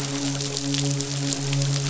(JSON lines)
{"label": "biophony, midshipman", "recorder": "SoundTrap 500"}